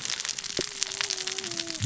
{"label": "biophony, cascading saw", "recorder": "SoundTrap 600 or HydroMoth"}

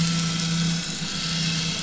{"label": "anthrophony, boat engine", "recorder": "SoundTrap 500"}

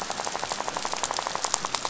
{"label": "biophony, rattle", "recorder": "SoundTrap 500"}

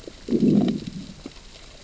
{"label": "biophony, growl", "recorder": "SoundTrap 600 or HydroMoth"}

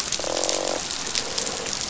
{"label": "biophony, croak", "recorder": "SoundTrap 500"}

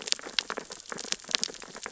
{"label": "biophony, sea urchins (Echinidae)", "recorder": "SoundTrap 600 or HydroMoth"}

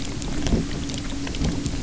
{"label": "anthrophony, boat engine", "recorder": "SoundTrap 300"}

